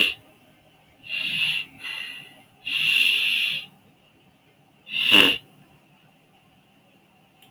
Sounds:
Sniff